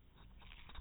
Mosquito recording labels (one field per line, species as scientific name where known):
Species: no mosquito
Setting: cup